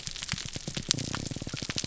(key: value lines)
label: biophony, grouper groan
recorder: SoundTrap 300